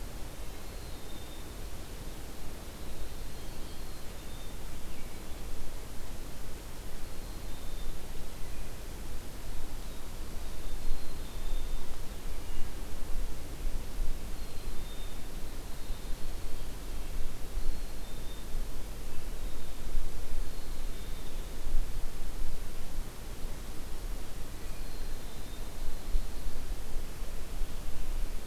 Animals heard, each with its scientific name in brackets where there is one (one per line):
Wood Thrush (Hylocichla mustelina)
Black-capped Chickadee (Poecile atricapillus)